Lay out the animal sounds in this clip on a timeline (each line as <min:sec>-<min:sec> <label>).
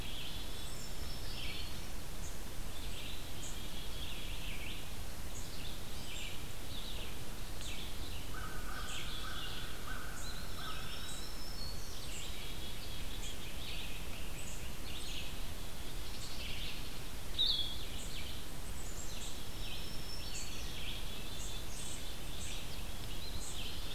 0:00.0-0:23.9 Red-eyed Vireo (Vireo olivaceus)
0:00.3-0:02.2 Black-throated Green Warbler (Setophaga virens)
0:02.1-0:23.9 unknown mammal
0:03.1-0:04.5 Black-capped Chickadee (Poecile atricapillus)
0:08.0-0:11.3 American Crow (Corvus brachyrhynchos)
0:10.0-0:11.4 Eastern Wood-Pewee (Contopus virens)
0:10.2-0:12.3 Black-throated Green Warbler (Setophaga virens)
0:17.2-0:17.9 Blue-headed Vireo (Vireo solitarius)
0:18.5-0:19.8 Black-capped Chickadee (Poecile atricapillus)
0:19.1-0:21.0 Black-throated Green Warbler (Setophaga virens)
0:23.0-0:23.9 Eastern Wood-Pewee (Contopus virens)